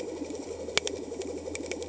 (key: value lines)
label: anthrophony, boat engine
recorder: HydroMoth